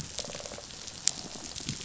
{"label": "biophony", "recorder": "SoundTrap 500"}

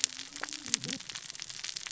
{"label": "biophony, cascading saw", "recorder": "SoundTrap 600 or HydroMoth"}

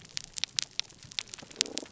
{"label": "biophony", "recorder": "SoundTrap 300"}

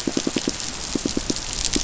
{"label": "biophony, pulse", "recorder": "SoundTrap 500"}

